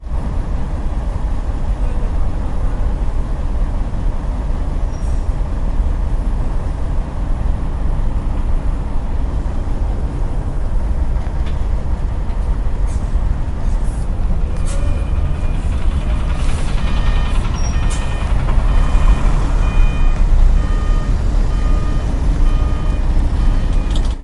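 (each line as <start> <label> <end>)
0.0 Truck engine running. 24.2
1.8 People talking quietly in the background. 3.1
14.6 A truck reversing beeps. 24.2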